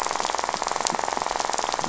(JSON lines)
{"label": "biophony, rattle", "recorder": "SoundTrap 500"}